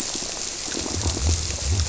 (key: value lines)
label: biophony, squirrelfish (Holocentrus)
recorder: SoundTrap 300

label: biophony
recorder: SoundTrap 300